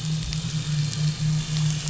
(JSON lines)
{"label": "anthrophony, boat engine", "recorder": "SoundTrap 500"}